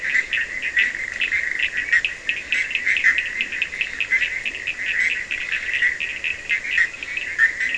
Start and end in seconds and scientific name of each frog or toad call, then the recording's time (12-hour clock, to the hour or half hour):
0.2	7.7	Sphaenorhynchus surdus
1.8	3.2	Boana leptolineata
4am